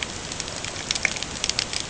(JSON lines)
{"label": "ambient", "recorder": "HydroMoth"}